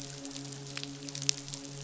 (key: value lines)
label: biophony, midshipman
recorder: SoundTrap 500